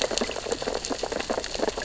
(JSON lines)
{"label": "biophony, sea urchins (Echinidae)", "recorder": "SoundTrap 600 or HydroMoth"}